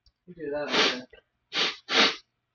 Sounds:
Sniff